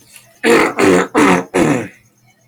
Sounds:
Throat clearing